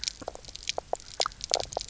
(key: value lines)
label: biophony, knock croak
recorder: SoundTrap 300